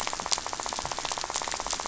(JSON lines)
{"label": "biophony, rattle", "recorder": "SoundTrap 500"}